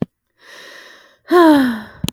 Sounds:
Sigh